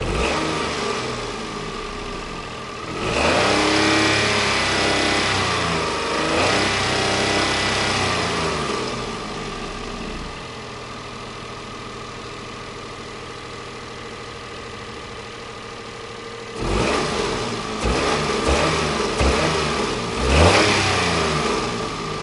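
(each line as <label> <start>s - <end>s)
A car engine is revving repeatedly outdoors. 0.0s - 22.2s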